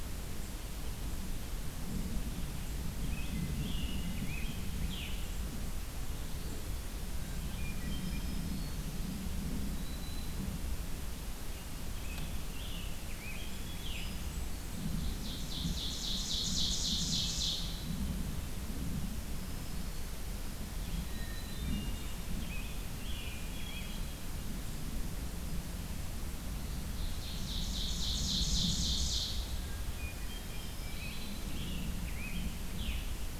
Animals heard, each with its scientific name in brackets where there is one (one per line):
Hermit Thrush (Catharus guttatus)
Ovenbird (Seiurus aurocapilla)
Black-throated Green Warbler (Setophaga virens)
Scarlet Tanager (Piranga olivacea)
Blackburnian Warbler (Setophaga fusca)